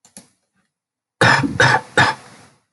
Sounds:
Cough